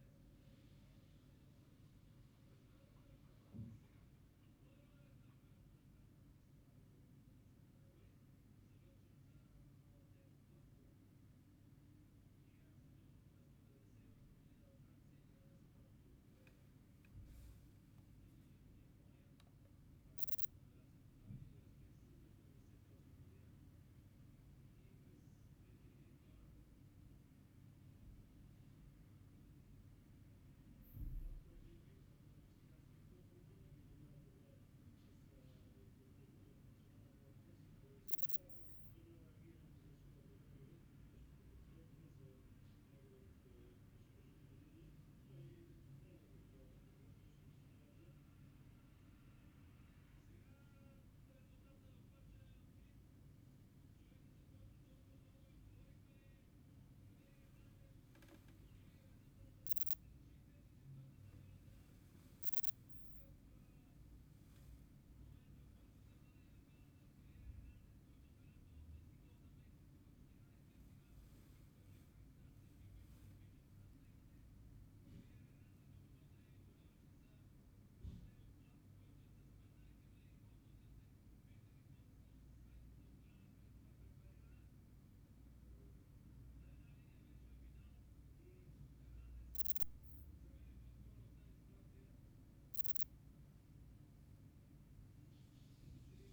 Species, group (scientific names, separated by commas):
Poecilimon chopardi, Orthoptera